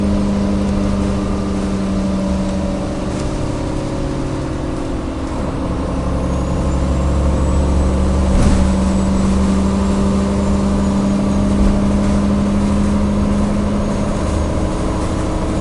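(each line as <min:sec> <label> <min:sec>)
0:00.0 An engine emits a loud, droning sound with oscillating volume and pitch as it revs. 0:15.6
0:08.3 A faint, distant metallic bang sounds quickly. 0:08.8
0:08.7 A faint rustling sound repeats. 0:15.6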